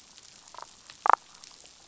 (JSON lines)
{"label": "biophony, damselfish", "recorder": "SoundTrap 500"}